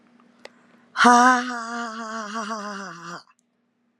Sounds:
Laughter